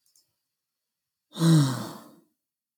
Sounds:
Sigh